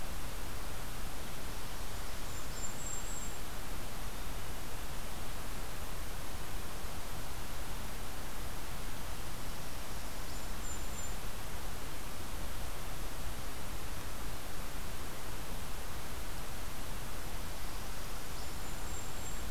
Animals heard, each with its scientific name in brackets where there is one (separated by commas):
Golden-crowned Kinglet (Regulus satrapa), Northern Parula (Setophaga americana)